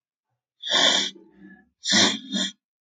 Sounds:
Sniff